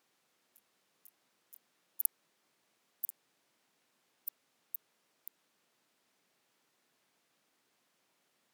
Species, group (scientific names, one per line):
Thyreonotus corsicus
Orthoptera